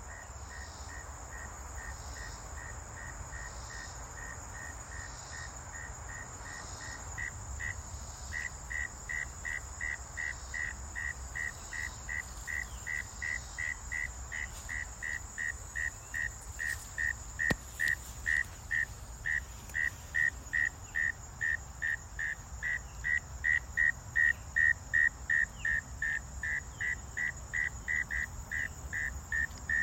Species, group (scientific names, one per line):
Neocurtilla hexadactyla
Orthoptera